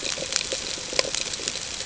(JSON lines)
{"label": "ambient", "recorder": "HydroMoth"}